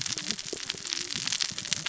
{"label": "biophony, cascading saw", "recorder": "SoundTrap 600 or HydroMoth"}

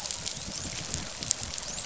{"label": "biophony, dolphin", "recorder": "SoundTrap 500"}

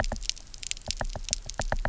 {"label": "biophony, knock", "recorder": "SoundTrap 300"}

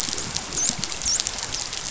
{"label": "biophony, dolphin", "recorder": "SoundTrap 500"}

